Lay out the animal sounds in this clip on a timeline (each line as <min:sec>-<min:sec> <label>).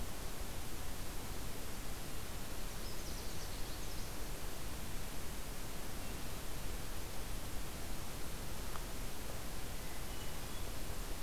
0:02.6-0:04.2 Canada Warbler (Cardellina canadensis)
0:09.6-0:10.8 Hermit Thrush (Catharus guttatus)